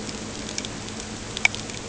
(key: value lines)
label: anthrophony, boat engine
recorder: HydroMoth